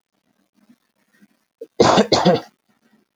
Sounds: Cough